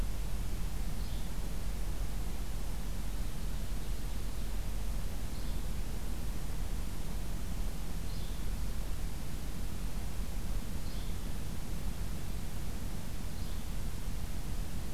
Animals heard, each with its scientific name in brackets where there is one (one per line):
Yellow-bellied Flycatcher (Empidonax flaviventris)
Ovenbird (Seiurus aurocapilla)